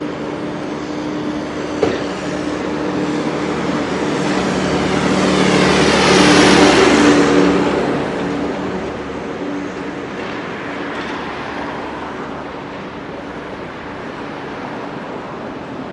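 3.3s A car passes by near a person. 9.3s

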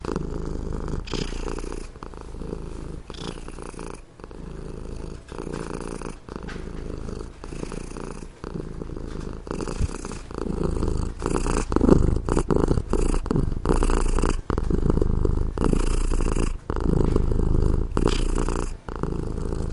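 0.0s An unknown animal purrs softly indoors, gradually becoming louder and more excited. 19.7s

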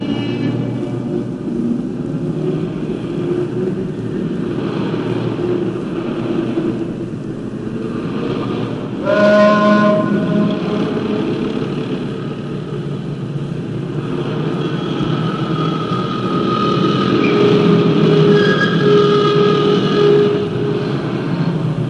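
0.1s Urban traffic ambience with honking, metallic clangs, passing vehicles, mid-frequency rumbles, and brief horn bursts in a reverberant environment. 21.9s

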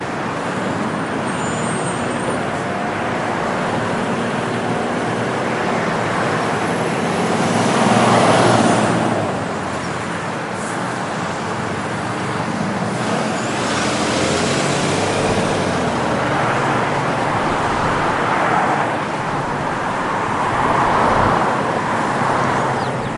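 0.1s Car engine humming with slight pitch changes as the vehicle drives smoothly. 23.2s
1.3s Ringing sound echoes briefly before fading. 2.2s
2.2s A bird is singing. 2.6s
12.2s Birds chirping and calling, creating a lively and layered natural soundscape. 16.3s
22.4s Birds chirping and calling, creating a lively and layered natural soundscape. 23.2s

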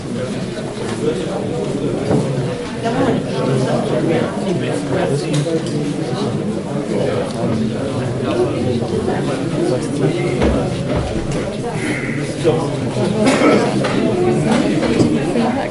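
0.0s People talking and chatting in a busy market. 15.7s

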